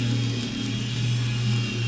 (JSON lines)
{"label": "anthrophony, boat engine", "recorder": "SoundTrap 500"}